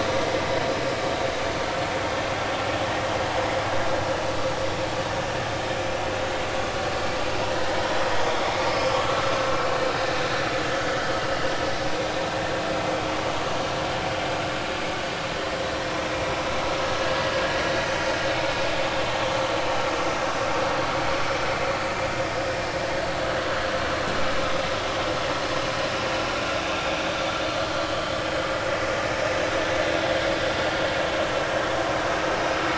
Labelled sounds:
2.9	3.1	vessel noise, 1.8 to 1.9 kHz
7.2	7.4	vessel noise, 4.6 to 4.8 kHz
8.7	9.3	vessel noise, 1.2 to 5.3 kHz
11.2	11.5	vessel noise, 2.8 to 2.9 kHz
15.0	15.3	vessel noise, 4.4 to 4.6 kHz

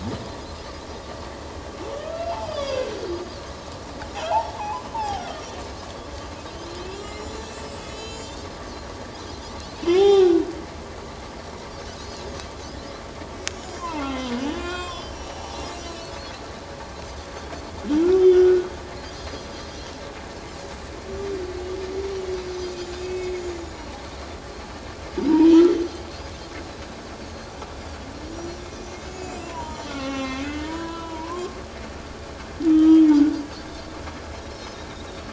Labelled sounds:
1.9	3.2	humpback whale, 1.2 to 5.0 kHz
4.2	5.4	humpback whale, 0.78 to 3.6 kHz
6.9	8.4	humpback whale, 2.5 to 7.7 kHz
9.9	10.5	humpback whale, 0.78 to 6.9 kHz
13.5	15.4	humpback whale, 0.78 to 7.2 kHz
15.6	16.1	Pacific white-sided dolphin, 2.5 to 7.8 kHz
18.2	18.7	humpback whale, 1.4 to 3.2 kHz
21.0	21.3	Pacific white-sided dolphin, 5.7 to 6.0 kHz
22.6	23.6	Pacific white-sided dolphin, 2.1 to 7.0 kHz
25.3	25.6	humpback whale, 0.88 to 1.0 kHz
28.3	29.9	Pacific white-sided dolphin, 0.84 to 7.2 kHz
29.6	31.6	humpback whale, 0.78 to 7.2 kHz
32.7	33.4	humpback whale, 1.2 to 3.6 kHz
33.6	33.8	Pacific white-sided dolphin, 3.5 to 3.8 kHz
34.5	34.8	Pacific white-sided dolphin, 5.1 to 5.4 kHz

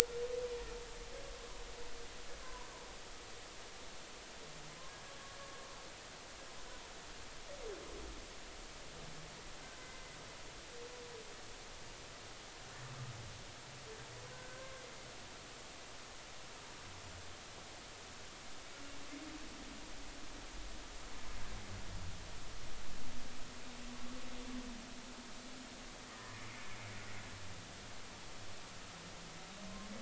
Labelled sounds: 2.4	2.7	humpback whale, 0.93 to 1.1 kHz
9.8	10.2	humpback whale, 1.9 to 2.1 kHz
14.3	14.8	humpback whale, 1.4 to 1.6 kHz
26.1	26.4	humpback whale, 1.7 to 1.9 kHz

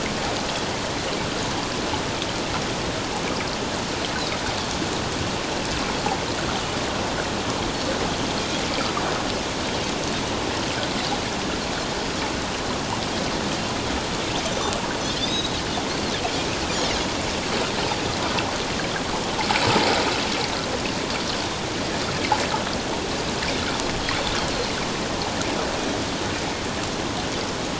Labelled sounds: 15.2	15.5	Pacific white-sided dolphin, 3.4 to 4.0 kHz

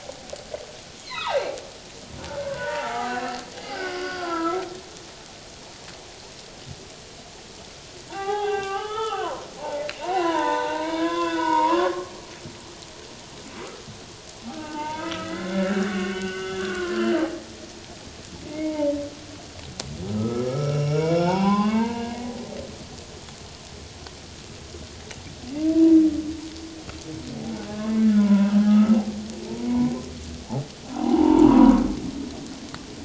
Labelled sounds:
1.0	1.5	humpback whale, 0.78 to 4.4 kHz
2.3	4.6	humpback whale, 0.78 to 4.9 kHz
8.1	12.1	humpback whale, 0.78 to 3.7 kHz
14.5	17.2	humpback whale, 0.81 to 3.1 kHz
18.5	19.0	humpback whale, 0.84 to 2.3 kHz
20.1	22.2	humpback whale, 0.78 to 5.6 kHz
28.1	29.9	humpback whale, 0.84 to 1.5 kHz
30.9	31.7	humpback whale, 0.78 to 1.2 kHz

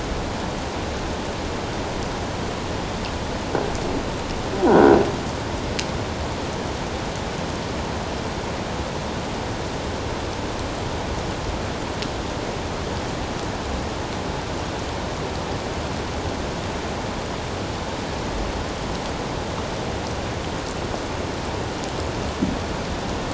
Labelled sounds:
4.7	5.0	croaking sound likely from a nearby submerged object, 1.4 to 1.6 kHz

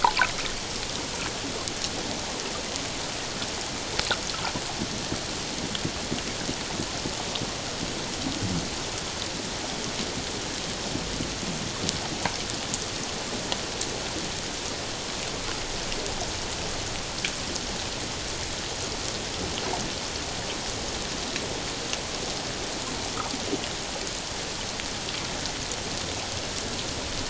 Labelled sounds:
0.2	0.4	water noise, 2.1 to 2.8 kHz

